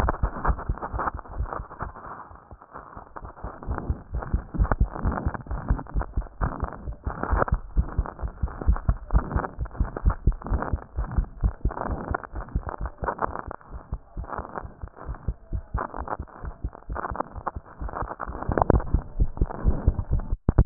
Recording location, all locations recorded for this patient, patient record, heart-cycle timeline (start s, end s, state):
mitral valve (MV)
aortic valve (AV)+pulmonary valve (PV)+tricuspid valve (TV)+mitral valve (MV)
#Age: Adolescent
#Sex: Male
#Height: nan
#Weight: nan
#Pregnancy status: False
#Murmur: Absent
#Murmur locations: nan
#Most audible location: nan
#Systolic murmur timing: nan
#Systolic murmur shape: nan
#Systolic murmur grading: nan
#Systolic murmur pitch: nan
#Systolic murmur quality: nan
#Diastolic murmur timing: nan
#Diastolic murmur shape: nan
#Diastolic murmur grading: nan
#Diastolic murmur pitch: nan
#Diastolic murmur quality: nan
#Outcome: Normal
#Campaign: 2015 screening campaign
0.00	7.74	unannotated
7.74	7.82	S1
7.82	7.96	systole
7.96	8.06	S2
8.06	8.22	diastole
8.22	8.31	S1
8.31	8.42	systole
8.42	8.52	S2
8.52	8.66	diastole
8.66	8.80	S1
8.80	8.87	systole
8.87	8.98	S2
8.98	9.12	diastole
9.12	9.26	S1
9.26	9.34	systole
9.34	9.44	S2
9.44	9.58	diastole
9.58	9.68	S1
9.68	9.78	systole
9.78	9.86	S2
9.86	10.04	diastole
10.04	10.15	S1
10.15	10.25	systole
10.25	10.36	S2
10.36	10.50	diastole
10.50	10.60	S1
10.60	10.71	systole
10.71	10.80	S2
10.80	10.96	diastole
10.96	11.06	S1
11.06	11.15	systole
11.15	11.26	S2
11.26	11.41	diastole
11.41	11.53	S1
11.53	11.63	systole
11.63	11.72	S2
11.72	11.88	diastole
11.88	11.96	S1
11.96	12.09	systole
12.09	12.18	S2
12.18	12.33	diastole
12.33	12.44	S1
12.44	12.53	systole
12.53	12.60	S2
12.60	12.80	diastole
12.80	12.90	S1
12.90	20.66	unannotated